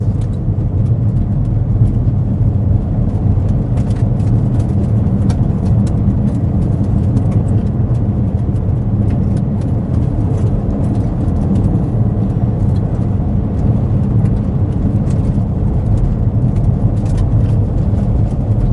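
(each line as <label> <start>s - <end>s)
Cars passing by muffledly. 0.2s - 18.6s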